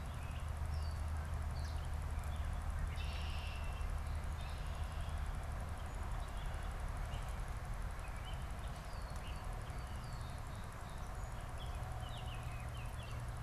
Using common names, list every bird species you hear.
Gray Catbird, Red-winged Blackbird, Song Sparrow